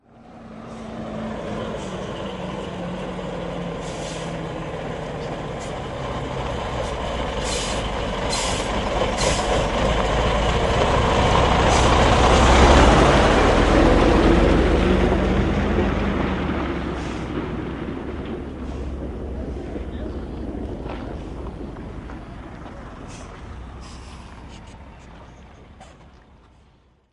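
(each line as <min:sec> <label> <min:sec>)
0:00.0 A large vehicle drives by, gradually getting closer and louder. 0:12.8
0:12.8 A large vehicle drives away, gradually decreasing in volume. 0:27.1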